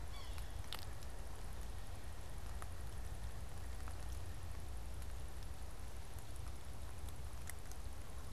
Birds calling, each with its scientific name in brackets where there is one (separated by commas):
Pileated Woodpecker (Dryocopus pileatus), Yellow-bellied Sapsucker (Sphyrapicus varius)